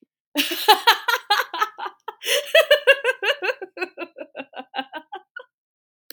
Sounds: Laughter